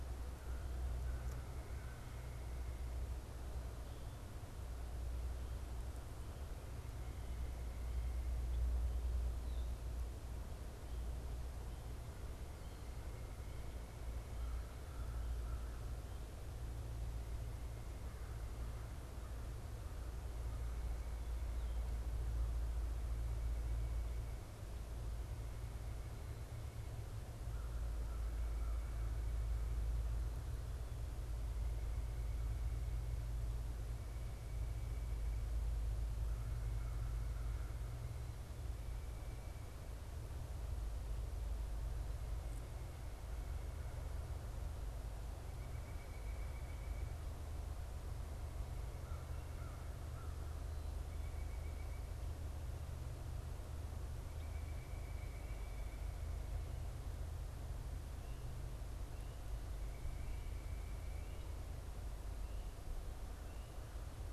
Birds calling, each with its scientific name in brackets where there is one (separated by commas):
American Crow (Corvus brachyrhynchos), White-breasted Nuthatch (Sitta carolinensis)